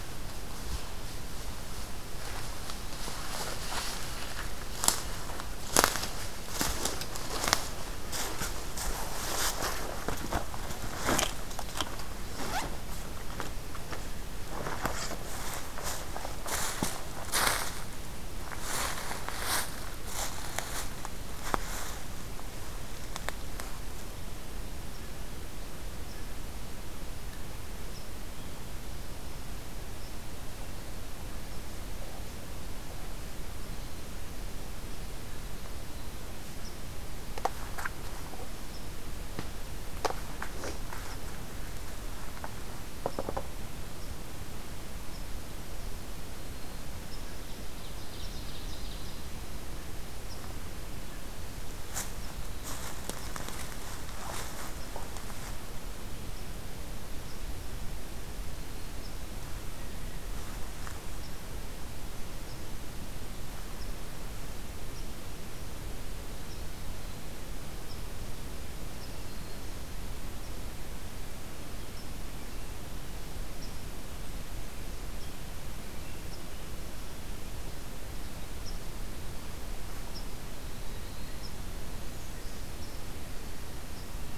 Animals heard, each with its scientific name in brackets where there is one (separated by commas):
Ovenbird (Seiurus aurocapilla)